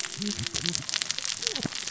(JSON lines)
{"label": "biophony, cascading saw", "recorder": "SoundTrap 600 or HydroMoth"}